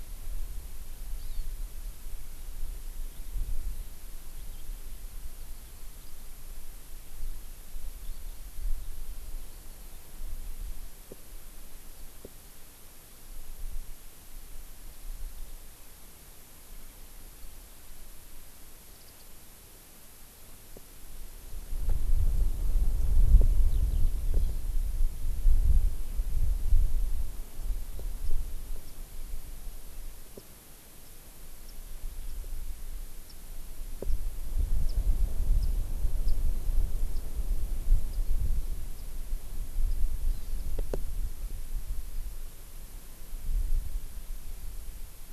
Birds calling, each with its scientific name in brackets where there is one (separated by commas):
Hawaii Amakihi (Chlorodrepanis virens), Eurasian Skylark (Alauda arvensis), Warbling White-eye (Zosterops japonicus)